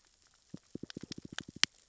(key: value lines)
label: biophony, knock
recorder: SoundTrap 600 or HydroMoth